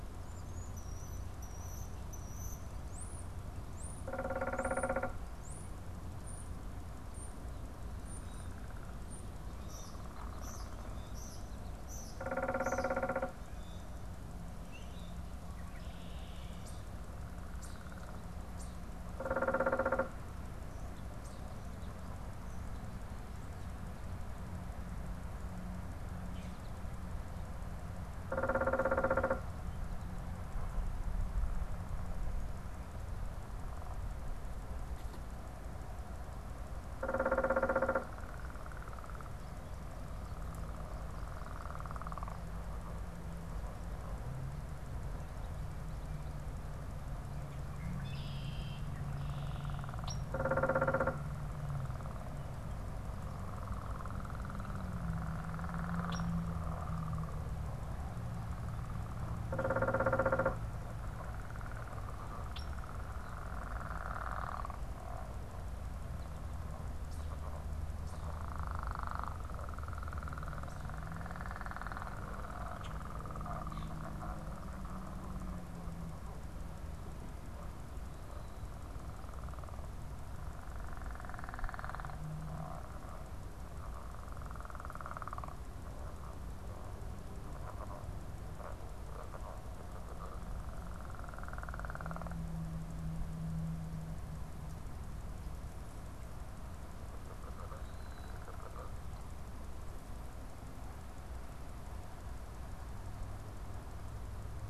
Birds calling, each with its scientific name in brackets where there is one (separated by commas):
European Starling (Sturnus vulgaris), Common Grackle (Quiscalus quiscula), unidentified bird, Red-winged Blackbird (Agelaius phoeniceus)